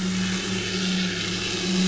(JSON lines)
{"label": "anthrophony, boat engine", "recorder": "SoundTrap 500"}